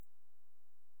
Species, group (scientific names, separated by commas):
Canariola emarginata, Orthoptera